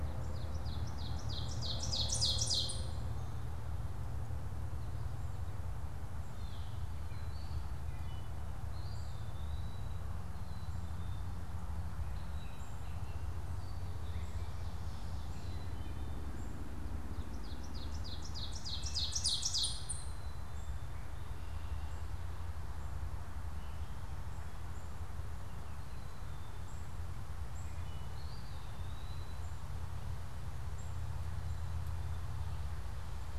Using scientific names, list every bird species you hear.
Seiurus aurocapilla, Dumetella carolinensis, Contopus virens, Poecile atricapillus, Hylocichla mustelina